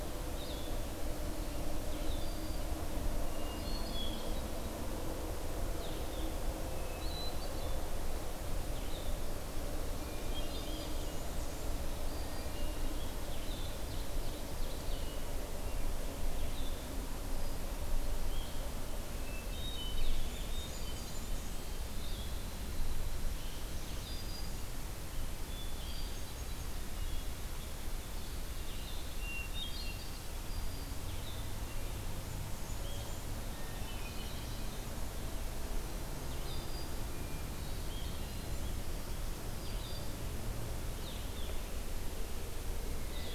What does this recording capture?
Blue-headed Vireo, Black-throated Green Warbler, Hermit Thrush, Red-eyed Vireo, Blackburnian Warbler, Ovenbird